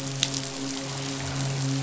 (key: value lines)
label: biophony, midshipman
recorder: SoundTrap 500